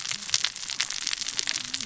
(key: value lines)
label: biophony, cascading saw
recorder: SoundTrap 600 or HydroMoth